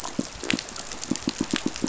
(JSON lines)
{"label": "biophony, pulse", "recorder": "SoundTrap 500"}